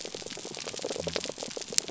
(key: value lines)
label: biophony
recorder: SoundTrap 300